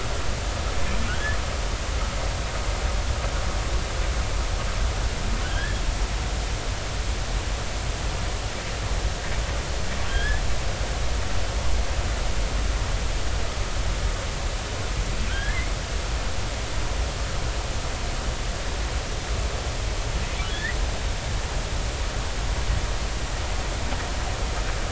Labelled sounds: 5.4	5.8	humpback whale, 1.4 to 1.9 kHz
10.0	10.4	humpback whale, 1.5 to 3.5 kHz
15.3	15.6	humpback whale, 1.3 to 1.8 kHz
20.5	20.8	humpback whale, 1.6 to 2.0 kHz

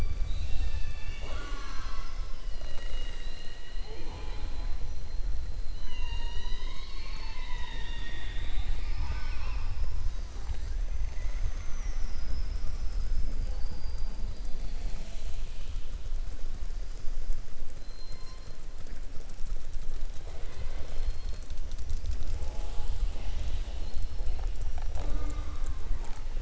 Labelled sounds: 13.4	14.2	killer whale, southern resident, 4.5 to 5.0 kHz

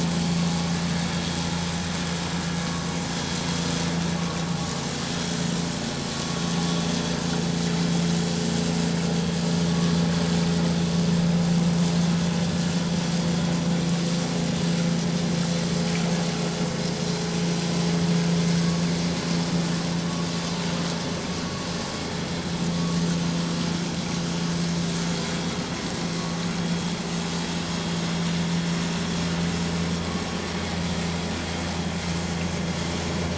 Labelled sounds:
9.7	9.9	vessel noise, 1.1 to 1.2 kHz

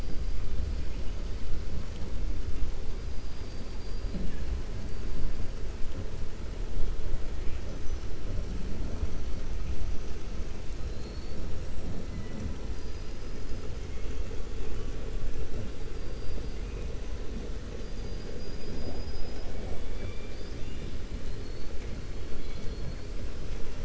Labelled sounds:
3.1	4.3	killer whale, 3.7 to 5.6 kHz
10.8	11.4	killer whale, 4.1 to 5.3 kHz
12.7	14.2	killer whale, 2.1 to 5.1 kHz
16.0	16.6	killer whale, 3.9 to 5.6 kHz
17.8	19.5	killer whale, 4.1 to 5.7 kHz
21.2	21.7	killer whale, 4.0 to 4.5 kHz

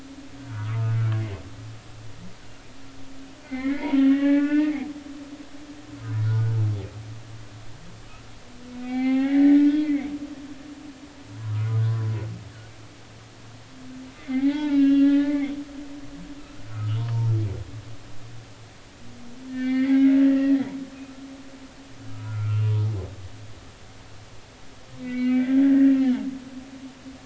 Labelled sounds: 0.4	0.9	humpback whale, 0.90 to 1.6 kHz
3.4	4.8	humpback whale, 0.80 to 3.6 kHz
6.2	6.5	humpback whale, 1.3 to 1.6 kHz
8.8	10.1	humpback whale, 0.80 to 3.4 kHz
11.3	11.6	humpback whale, 0.90 to 1.2 kHz
14.1	15.5	humpback whale, 0.80 to 3.8 kHz
16.6	17.3	humpback whale, 0.86 to 1.5 kHz
19.5	20.7	humpback whale, 1.7 to 4.3 kHz
21.3	22.7	humpback whale, 1.2 to 2.8 kHz
25.0	26.2	humpback whale, 1.4 to 2.9 kHz

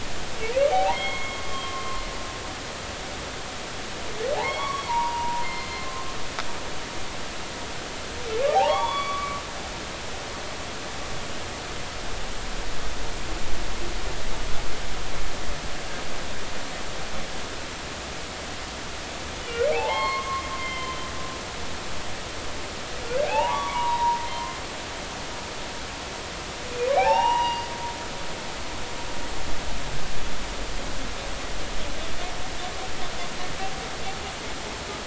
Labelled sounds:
0.7	2.0	humpback whale, 0.80 to 3.3 kHz
4.4	5.9	humpback whale, 0.80 to 5.7 kHz
8.5	9.4	humpback whale, 0.80 to 3.5 kHz
19.7	21.0	humpback whale, 0.80 to 4.4 kHz
23.2	24.6	humpback whale, 0.80 to 3.9 kHz
26.9	27.7	humpback whale, 0.80 to 4.8 kHz

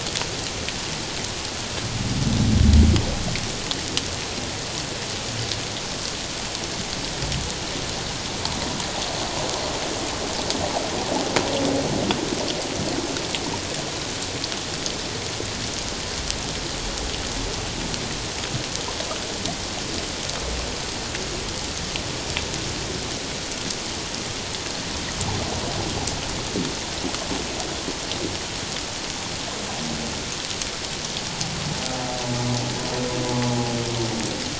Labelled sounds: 33.5	33.8	humpback whale, 0.78 to 0.84 kHz

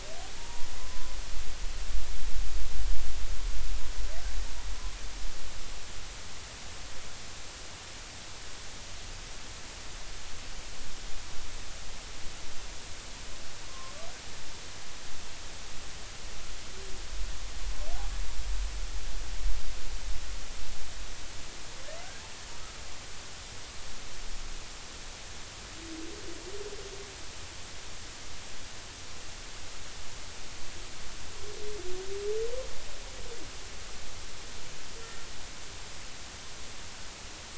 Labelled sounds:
0.4	1.1	humpback whale, 0.90 to 1.1 kHz
13.7	13.9	humpback whale, 0.99 to 1.1 kHz
22.5	22.8	humpback whale, 1.2 to 1.4 kHz
35.0	35.2	humpback whale, 1.8 to 1.9 kHz

